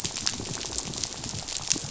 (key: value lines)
label: biophony, rattle
recorder: SoundTrap 500